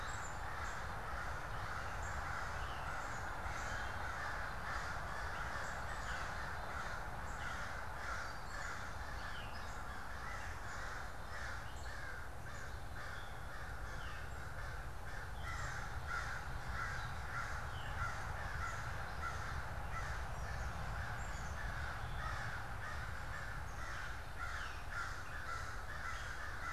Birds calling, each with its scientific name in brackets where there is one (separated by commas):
Black-capped Chickadee (Poecile atricapillus), American Crow (Corvus brachyrhynchos), Veery (Catharus fuscescens)